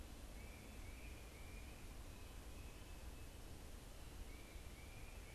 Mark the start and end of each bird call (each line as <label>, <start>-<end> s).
Tufted Titmouse (Baeolophus bicolor), 0.0-5.3 s